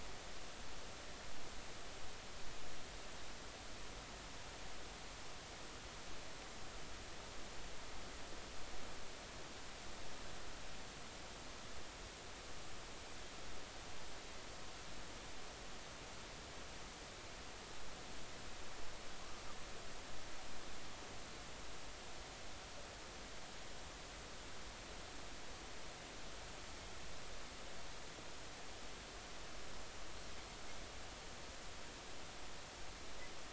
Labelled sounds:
19.2	19.4	humpback whale, 0.99 to 1.3 kHz

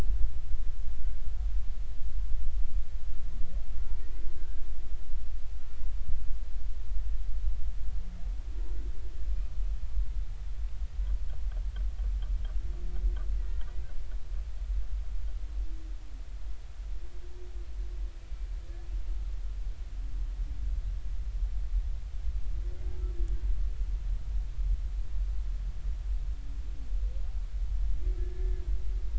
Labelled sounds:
4.0	4.6	humpback whale, 1.4 to 2.1 kHz
13.4	13.7	humpback whale, 1.8 to 2.0 kHz
28.2	28.6	humpback whale, 1.6 to 1.8 kHz

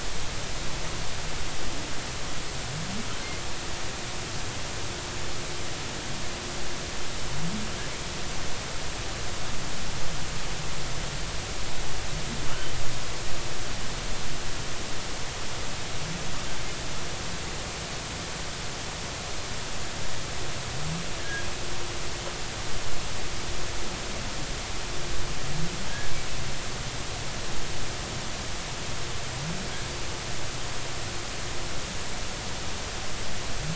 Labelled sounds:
21.2	21.5	humpback whale, 1.5 to 1.8 kHz

